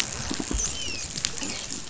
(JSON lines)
{"label": "biophony, dolphin", "recorder": "SoundTrap 500"}